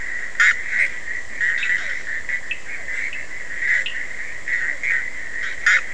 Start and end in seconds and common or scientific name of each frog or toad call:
0.0	5.9	Bischoff's tree frog
0.0	5.9	Physalaemus cuvieri
2.4	4.2	Cochran's lime tree frog